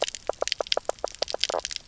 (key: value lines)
label: biophony, knock croak
recorder: SoundTrap 300